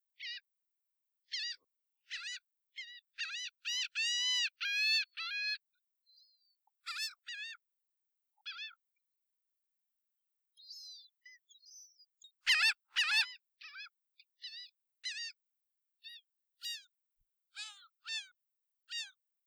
Are there panthers growling?
no